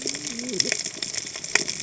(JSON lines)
{"label": "biophony, cascading saw", "recorder": "HydroMoth"}